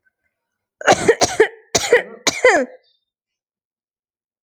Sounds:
Cough